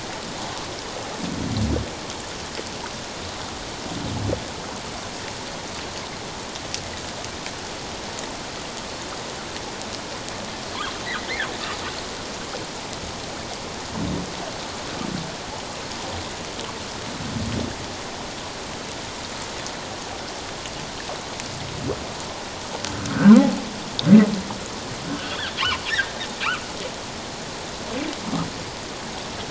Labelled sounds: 23.1	23.4	humpback whale, 1.2 to 1.6 kHz
25.1	25.5	humpback whale, 1.4 to 3.6 kHz

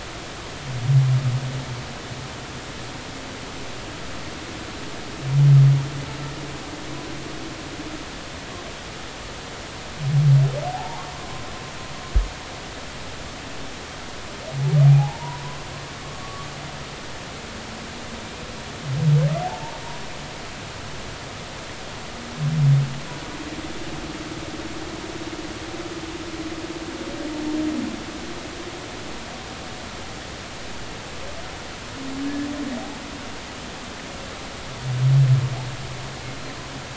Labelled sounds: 10.7	11.4	humpback whale, 0.80 to 1.2 kHz
14.8	15.6	humpback whale, 0.80 to 1.1 kHz
16.0	16.5	humpback whale, 1.0 to 1.2 kHz
19.4	19.8	humpback whale, 0.80 to 0.99 kHz

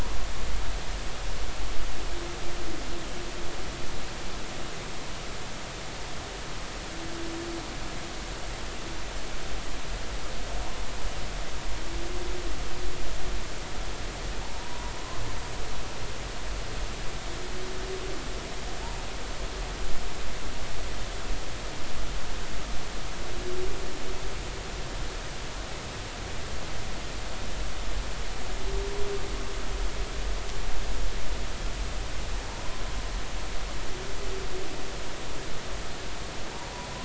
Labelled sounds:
14.4	14.9	humpback whale, 0.80 to 1.1 kHz

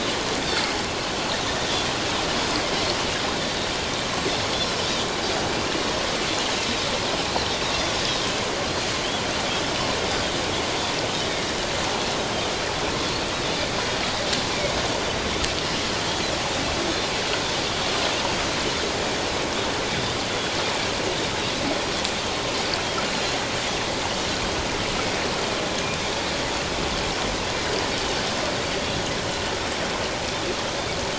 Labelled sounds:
14.5	14.8	Pacific white-sided dolphin, 2.1 to 2.4 kHz

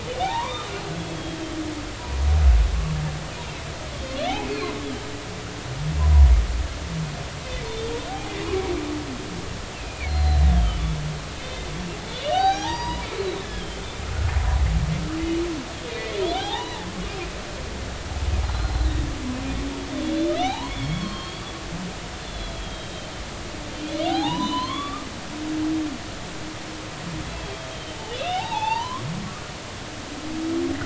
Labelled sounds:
0.2	1.4	humpback whale, 0.80 to 3.8 kHz
4.5	4.7	humpback whale, 3.8 to 4.6 kHz
8.1	8.3	humpback whale, 0.80 to 0.90 kHz
9.7	10.8	humpback whale, 2.0 to 4.2 kHz
11.3	11.7	humpback whale, 2.5 to 3.8 kHz
12.1	13.0	humpback whale, 0.80 to 6.6 kHz
13.4	13.8	humpback whale, 1.6 to 3.5 kHz
16.2	16.9	humpback whale, 0.80 to 4.2 kHz
18.4	18.9	humpback whale, 4.0 to 4.2 kHz
20.0	21.5	humpback whale, 0.80 to 4.6 kHz
22.2	23.1	humpback whale, 3.1 to 4.3 kHz
24.1	25.1	humpback whale, 0.80 to 4.3 kHz
27.4	29.0	humpback whale, 0.80 to 3.8 kHz

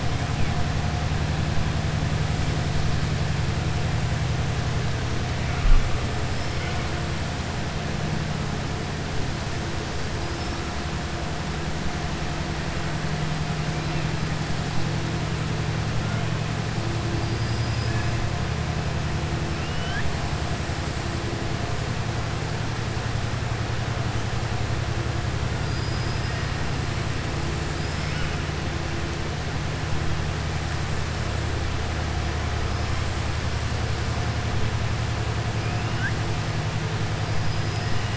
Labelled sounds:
17.2	17.9	killer whale, southern resident, 4.7 to 5.1 kHz
19.5	20.1	killer whale, southern resident, 1.2 to 3.4 kHz
25.6	26.3	killer whale, southern resident, 4.6 to 5.1 kHz

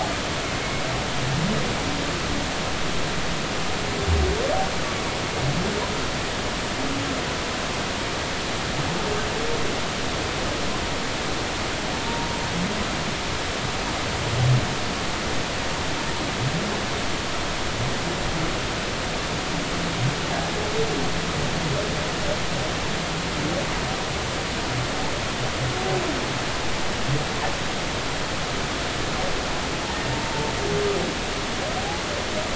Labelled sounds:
12.1	12.3	humpback whale, 0.90 to 0.99 kHz
29.9	30.5	humpback whale, 0.86 to 1.9 kHz
31.8	32.0	humpback whale, 0.80 to 0.96 kHz

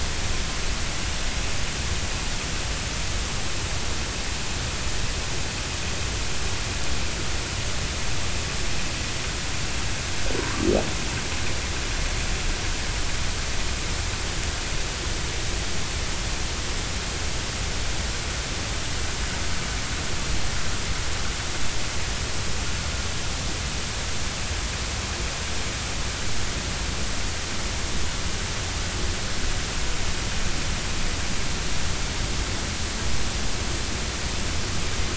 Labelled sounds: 10.4	10.7	humpback whale, 0.93 to 1.2 kHz

